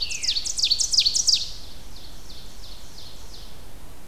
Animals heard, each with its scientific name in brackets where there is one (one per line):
Ovenbird (Seiurus aurocapilla)